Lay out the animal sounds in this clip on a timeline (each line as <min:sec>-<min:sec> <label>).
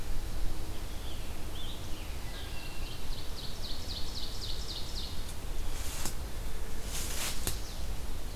0:00.9-0:02.8 Scarlet Tanager (Piranga olivacea)
0:02.0-0:03.0 Wood Thrush (Hylocichla mustelina)
0:02.6-0:05.5 Ovenbird (Seiurus aurocapilla)